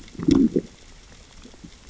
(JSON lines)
{"label": "biophony, growl", "recorder": "SoundTrap 600 or HydroMoth"}